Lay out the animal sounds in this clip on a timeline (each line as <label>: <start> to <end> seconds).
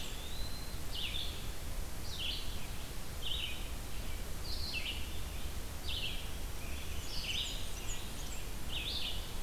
Eastern Wood-Pewee (Contopus virens): 0.0 to 0.8 seconds
Red-eyed Vireo (Vireo olivaceus): 0.0 to 9.2 seconds
Blackburnian Warbler (Setophaga fusca): 6.9 to 8.6 seconds